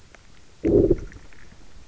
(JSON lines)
{"label": "biophony, low growl", "recorder": "SoundTrap 300"}